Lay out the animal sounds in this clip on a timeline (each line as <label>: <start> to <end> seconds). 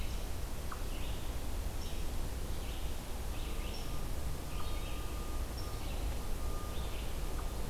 Red-eyed Vireo (Vireo olivaceus): 0.0 to 7.7 seconds
unknown mammal: 0.0 to 7.7 seconds